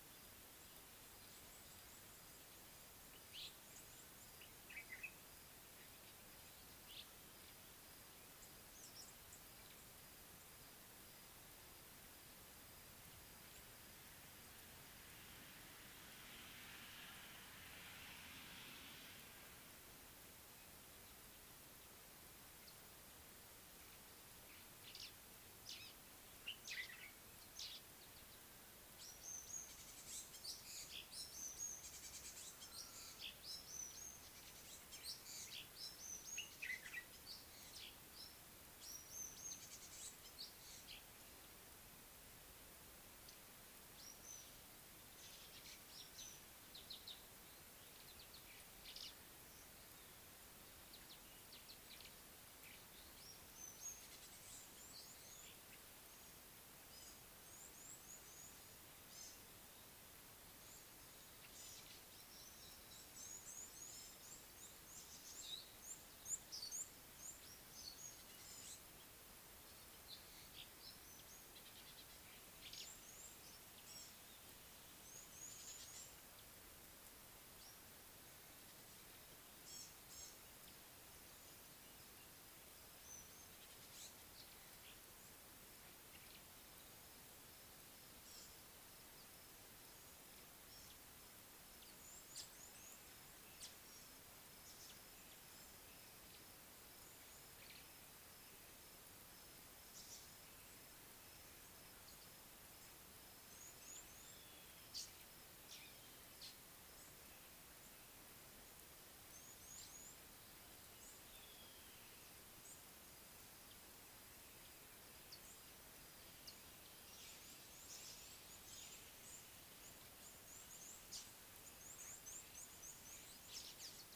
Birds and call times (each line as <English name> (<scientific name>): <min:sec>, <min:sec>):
Red-rumped Swallow (Cecropis daurica): 0:03.5, 0:07.0
Common Bulbul (Pycnonotus barbatus): 0:04.7, 0:26.6, 0:36.7
White-browed Sparrow-Weaver (Plocepasser mahali): 0:27.7
African Gray Flycatcher (Bradornis microrhynchus): 0:31.5, 0:39.0, 0:53.7, 1:40.1
Scarlet-chested Sunbird (Chalcomitra senegalensis): 0:46.9
Red-cheeked Cordonbleu (Uraeginthus bengalus): 0:57.9, 1:05.9, 1:15.4, 1:44.0, 1:49.8, 2:02.4
Meyer's Parrot (Poicephalus meyeri): 1:06.7
Gray-backed Camaroptera (Camaroptera brevicaudata): 1:19.9